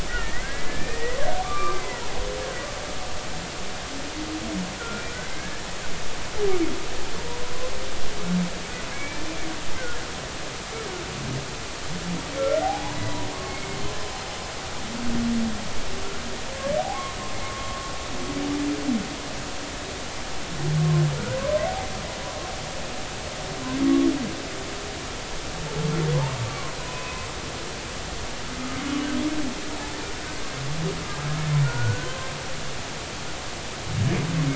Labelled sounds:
0.1	2.0	humpback whale, 1.0 to 2.5 kHz
4.8	5.6	humpback whale, 1.3 to 2.3 kHz
8.9	9.3	humpback whale, 1.6 to 2.5 kHz
12.4	13.6	humpback whale, 0.80 to 4.0 kHz
16.9	17.8	humpback whale, 0.99 to 1.2 kHz
23.8	24.1	humpback whale, 1.1 to 1.2 kHz
26.5	27.3	humpback whale, 0.96 to 2.7 kHz
31.6	32.3	humpback whale, 0.99 to 1.6 kHz

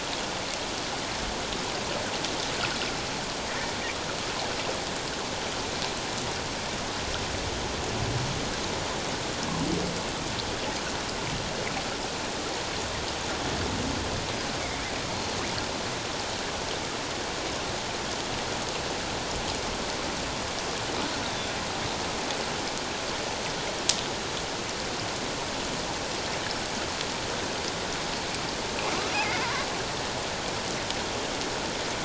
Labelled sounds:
14.6	14.9	killer whale, offshore, call OFF07, 2.0 to 2.3 kHz
29.2	29.5	killer whale, offshore, call OFF07, 2.0 to 2.2 kHz

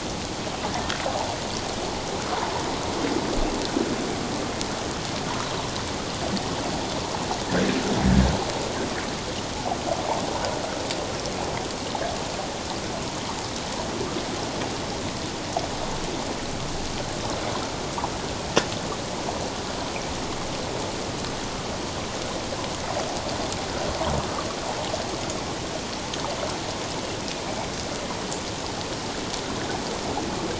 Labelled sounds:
27.5	27.7	killer whale, northern resident, A clan, AA subclan, 2.2 to 2.4 kHz

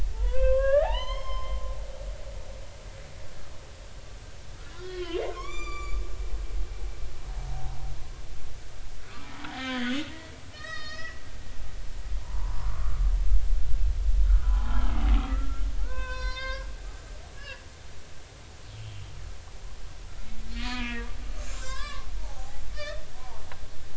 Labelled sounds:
0.1	1.6	humpback whale, 0.80 to 6.4 kHz
4.6	6.0	humpback whale, 0.96 to 7.2 kHz
7.5	7.9	humpback whale, 0.80 to 1.1 kHz
9.1	10.0	humpback whale, 1.1 to 3.6 kHz
10.5	11.2	humpback whale, 1.2 to 5.9 kHz
12.2	12.9	humpback whale, 0.83 to 1.5 kHz
14.2	16.7	humpback whale, 0.80 to 5.7 kHz
17.4	17.6	humpback whale, 1.6 to 2.9 kHz
20.5	21.1	humpback whale, 0.93 to 4.5 kHz
21.4	23.4	humpback whale, 0.80 to 7.5 kHz

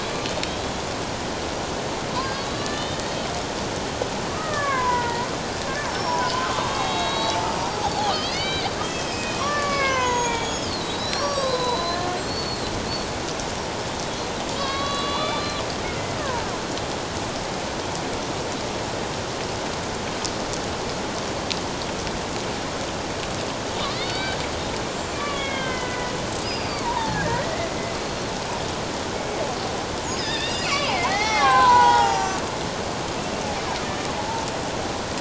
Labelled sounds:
0.0	0.4	killer whale, Bigg's (transient), 3.8 to 4.2 kHz
2.3	3.0	killer whale, Bigg's (transient), 1.7 to 4.1 kHz
4.3	5.3	killer whale, Bigg's (transient), 0.81 to 2.3 kHz
5.9	12.7	killer whale, Bigg's (transient), 0.78 to 8.0 kHz
14.5	16.5	killer whale, Bigg's (transient), 0.84 to 4.6 kHz
23.9	24.4	killer whale, Bigg's (transient), 1.4 to 4.7 kHz
24.9	26.2	killer whale, Bigg's (transient), 1.1 to 7.4 kHz
26.4	27.3	killer whale, Bigg's (transient), 0.78 to 5.1 kHz
28.0	28.3	killer whale, Bigg's (transient), 4.1 to 4.3 kHz
29.1	29.4	killer whale, Bigg's (transient), 2.16 to 2.25 kHz
30.1	32.3	killer whale, Bigg's (transient), 0.78 to 7.3 kHz

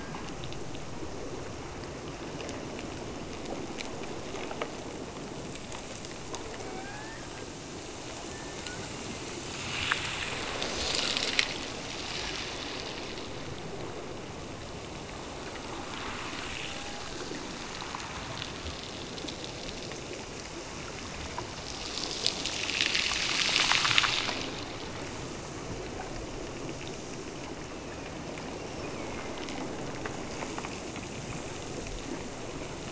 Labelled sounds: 6.6	7.9	killer whale, Bigg's (transient), Gulf of Alaska transient, 0.57 to 2.0 kHz
28.4	29.7	killer whale, Bigg's (transient), Gulf of Alaska transient, 1.9 to 2.9 kHz

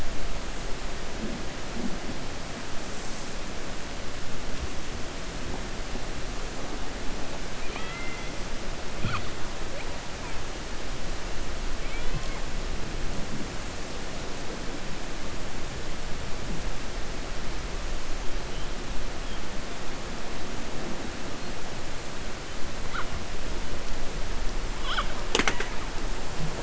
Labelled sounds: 7.6	8.3	killer whale, 0.48 to 3.8 kHz

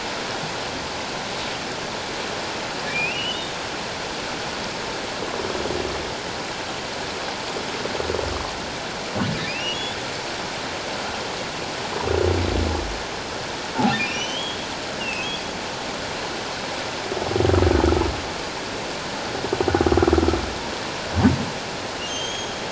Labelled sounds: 2.9	3.6	humpback whale, 2.3 to 3.8 kHz
9.4	9.8	humpback whale, 2.1 to 3.0 kHz
14.0	15.4	humpback whale, 2.3 to 6.2 kHz
22.1	22.5	humpback whale, 3.1 to 6.7 kHz

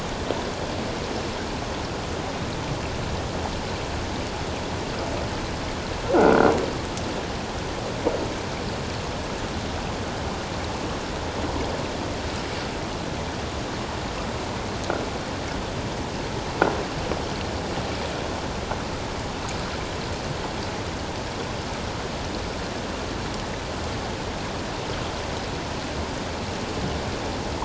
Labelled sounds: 6.1	6.5	croaking sound likely from a nearby submerged object, 1.3 to 1.6 kHz

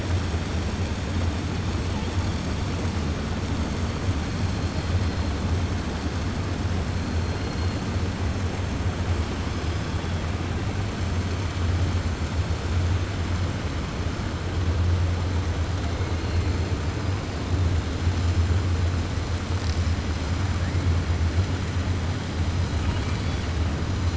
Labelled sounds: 22.8	23.5	killer whale, 1.7 to 4.6 kHz

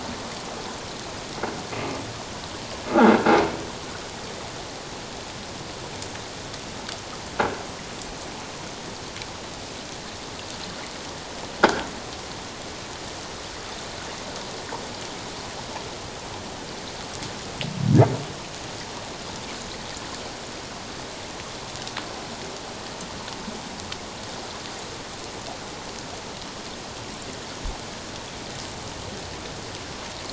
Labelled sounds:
11.6	11.9	croaking sound likely from a nearby submerged object, 1.3 to 1.7 kHz

